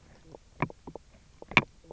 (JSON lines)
{"label": "biophony, knock croak", "recorder": "SoundTrap 300"}